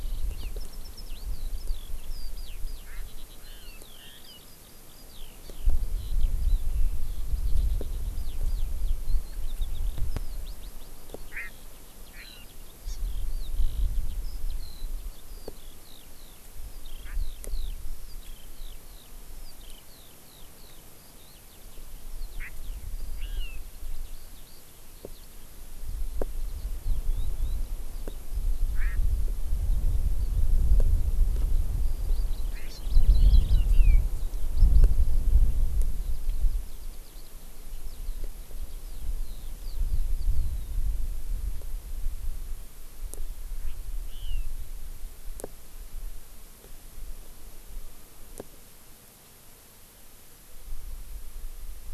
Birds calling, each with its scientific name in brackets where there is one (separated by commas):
Hawaii Amakihi (Chlorodrepanis virens), Chinese Hwamei (Garrulax canorus), Eurasian Skylark (Alauda arvensis)